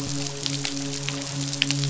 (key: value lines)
label: biophony, midshipman
recorder: SoundTrap 500